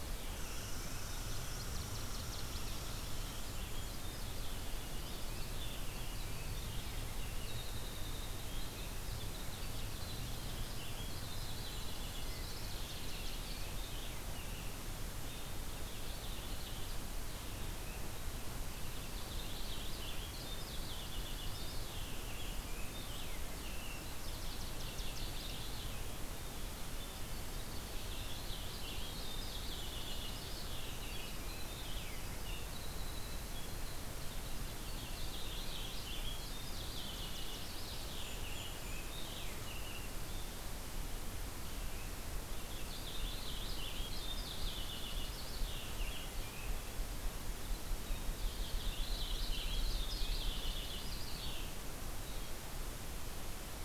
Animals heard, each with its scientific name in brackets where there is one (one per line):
Winter Wren (Troglodytes hiemalis)
Northern Waterthrush (Parkesia noveboracensis)
Golden-crowned Kinglet (Regulus satrapa)
Red Squirrel (Tamiasciurus hudsonicus)
Purple Finch (Haemorhous purpureus)